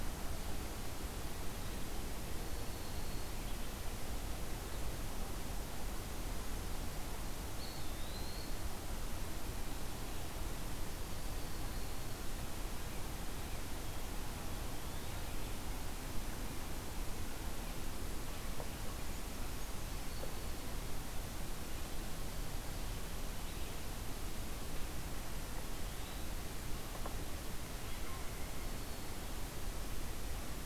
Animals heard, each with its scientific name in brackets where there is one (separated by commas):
Eastern Wood-Pewee (Contopus virens)